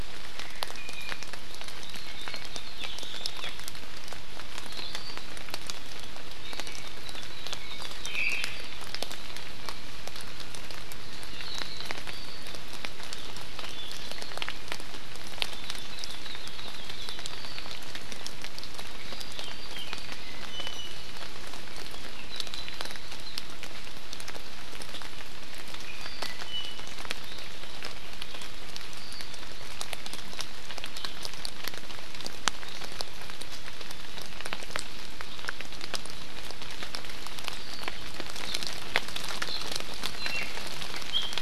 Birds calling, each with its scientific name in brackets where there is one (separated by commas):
Omao (Myadestes obscurus), Hawaii Akepa (Loxops coccineus), Iiwi (Drepanis coccinea)